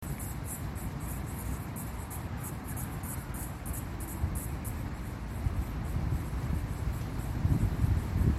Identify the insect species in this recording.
Yoyetta celis